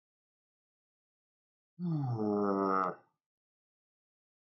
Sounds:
Sigh